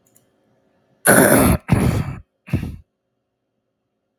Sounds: Throat clearing